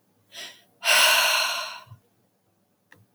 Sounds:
Sigh